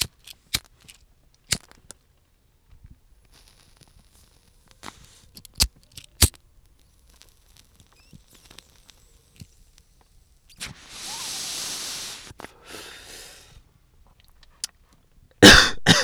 is there no coughing?
no